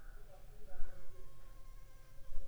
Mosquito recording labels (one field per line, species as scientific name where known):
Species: Anopheles funestus s.s.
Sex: female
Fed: unfed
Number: one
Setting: cup